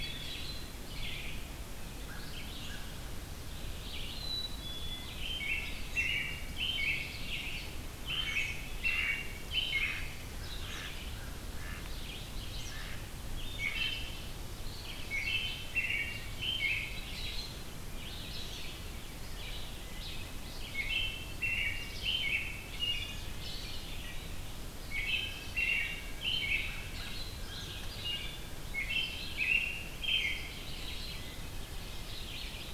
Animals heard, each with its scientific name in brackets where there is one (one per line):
American Crow (Corvus brachyrhynchos)
Eastern Kingbird (Tyrannus tyrannus)
Red-eyed Vireo (Vireo olivaceus)
Mallard (Anas platyrhynchos)
Black-throated Green Warbler (Setophaga virens)
Hermit Thrush (Catharus guttatus)
American Robin (Turdus migratorius)
Black-capped Chickadee (Poecile atricapillus)